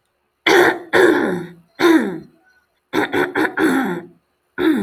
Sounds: Throat clearing